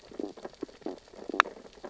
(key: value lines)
label: biophony, sea urchins (Echinidae)
recorder: SoundTrap 600 or HydroMoth

label: biophony, stridulation
recorder: SoundTrap 600 or HydroMoth